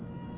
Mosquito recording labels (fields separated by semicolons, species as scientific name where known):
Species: Aedes albopictus; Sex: female; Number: one; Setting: insect culture